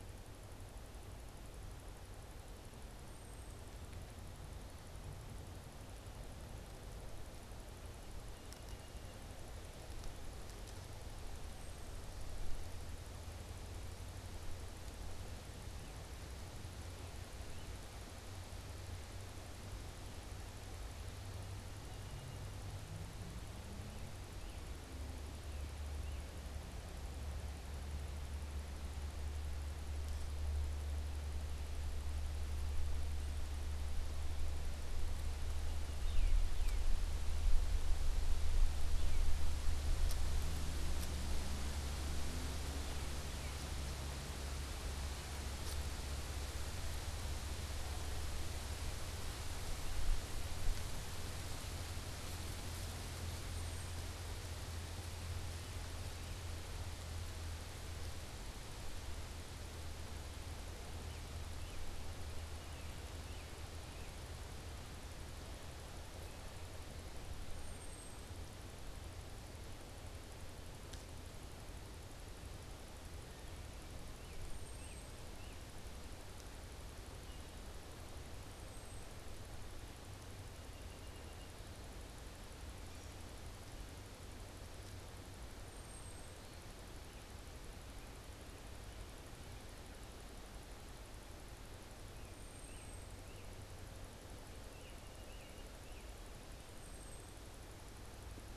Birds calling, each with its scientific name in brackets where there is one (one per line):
American Robin (Turdus migratorius)
unidentified bird
Song Sparrow (Melospiza melodia)